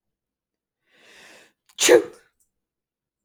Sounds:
Sneeze